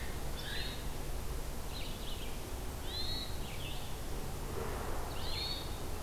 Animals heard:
Pileated Woodpecker (Dryocopus pileatus), Red-eyed Vireo (Vireo olivaceus), Hermit Thrush (Catharus guttatus)

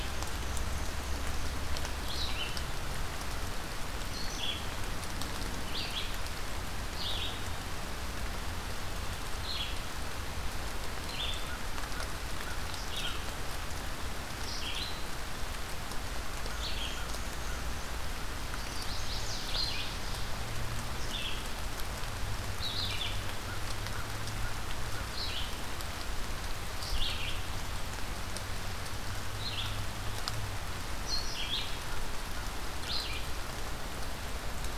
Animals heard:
Black-and-white Warbler (Mniotilta varia), Chestnut-sided Warbler (Setophaga pensylvanica), American Crow (Corvus brachyrhynchos), Red-eyed Vireo (Vireo olivaceus)

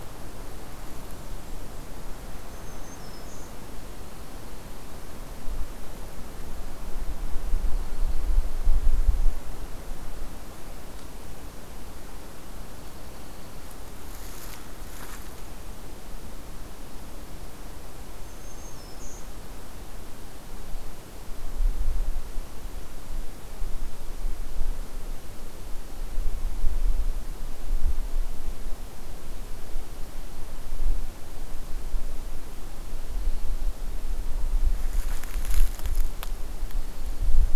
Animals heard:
Dark-eyed Junco (Junco hyemalis), Black-throated Green Warbler (Setophaga virens)

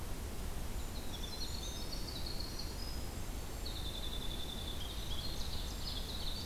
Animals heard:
Ovenbird (Seiurus aurocapilla), Winter Wren (Troglodytes hiemalis)

